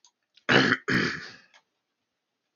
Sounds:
Throat clearing